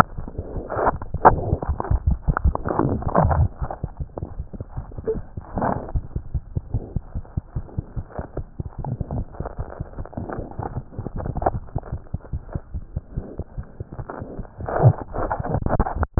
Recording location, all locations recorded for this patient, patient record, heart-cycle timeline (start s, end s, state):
tricuspid valve (TV)
aortic valve (AV)+pulmonary valve (PV)+tricuspid valve (TV)+mitral valve (MV)
#Age: Infant
#Sex: Female
#Height: 70.0 cm
#Weight: 9.3 kg
#Pregnancy status: False
#Murmur: Absent
#Murmur locations: nan
#Most audible location: nan
#Systolic murmur timing: nan
#Systolic murmur shape: nan
#Systolic murmur grading: nan
#Systolic murmur pitch: nan
#Systolic murmur quality: nan
#Diastolic murmur timing: nan
#Diastolic murmur shape: nan
#Diastolic murmur grading: nan
#Diastolic murmur pitch: nan
#Diastolic murmur quality: nan
#Outcome: Abnormal
#Campaign: 2015 screening campaign
0.00	6.19	unannotated
6.19	6.30	diastole
6.30	6.38	S1
6.38	6.54	systole
6.54	6.61	S2
6.61	6.71	diastole
6.71	6.80	S1
6.80	6.95	systole
6.95	6.99	S2
6.99	7.13	diastole
7.13	7.22	S1
7.22	7.34	systole
7.34	7.40	S2
7.40	7.54	diastole
7.54	7.62	S1
7.62	7.76	systole
7.76	7.82	S2
7.82	7.94	diastole
7.94	8.02	S1
8.02	8.16	systole
8.16	8.24	S2
8.24	8.35	diastole
8.35	8.43	S1
8.43	8.58	systole
8.58	8.64	S2
8.64	8.77	diastole
8.77	8.83	S1
8.83	8.98	systole
8.98	9.05	S2
9.05	9.17	diastole
9.17	9.24	S1
9.24	9.38	systole
9.38	9.44	S2
9.44	9.57	diastole
9.57	9.64	S1
9.64	9.79	systole
9.79	9.84	S2
9.84	9.97	diastole
9.97	10.06	S1
10.06	16.19	unannotated